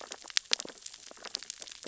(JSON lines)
{"label": "biophony, sea urchins (Echinidae)", "recorder": "SoundTrap 600 or HydroMoth"}